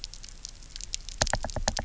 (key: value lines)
label: biophony, knock
recorder: SoundTrap 300